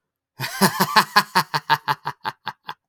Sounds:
Laughter